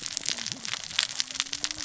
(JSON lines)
{"label": "biophony, cascading saw", "recorder": "SoundTrap 600 or HydroMoth"}